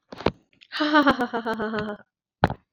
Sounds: Laughter